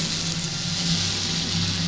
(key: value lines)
label: anthrophony, boat engine
recorder: SoundTrap 500